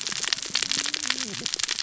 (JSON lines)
{"label": "biophony, cascading saw", "recorder": "SoundTrap 600 or HydroMoth"}